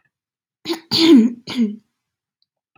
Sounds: Throat clearing